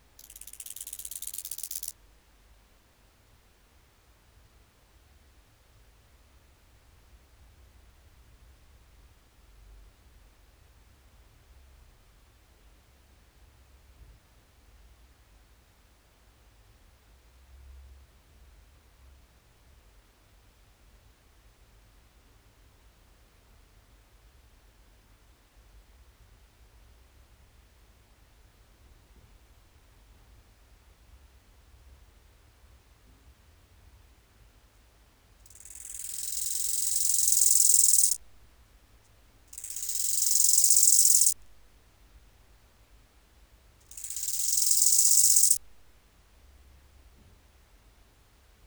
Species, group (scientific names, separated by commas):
Chorthippus biguttulus, Orthoptera